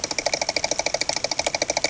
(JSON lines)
{"label": "anthrophony, boat engine", "recorder": "HydroMoth"}